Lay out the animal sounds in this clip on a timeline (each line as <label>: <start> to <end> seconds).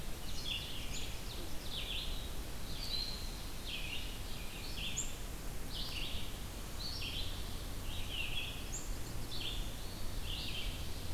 Ovenbird (Seiurus aurocapilla): 0.0 to 2.1 seconds
Red-eyed Vireo (Vireo olivaceus): 0.0 to 11.1 seconds